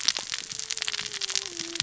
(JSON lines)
{"label": "biophony, cascading saw", "recorder": "SoundTrap 600 or HydroMoth"}